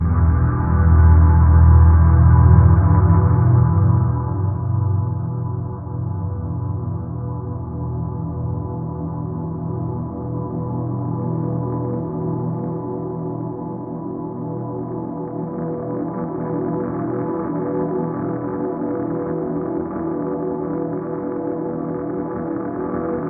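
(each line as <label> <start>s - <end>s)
A dark guitar chord gradually pitching down with a deep, shifting tone. 0.0s - 23.3s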